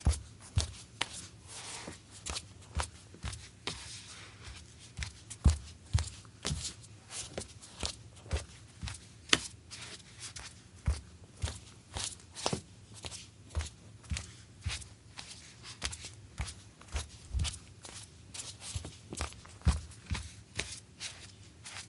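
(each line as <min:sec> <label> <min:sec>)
0:00.0 Footsteps of a person walking barefoot at a medium pace on a wooden floor. 0:21.9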